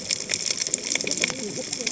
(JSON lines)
{"label": "biophony, cascading saw", "recorder": "HydroMoth"}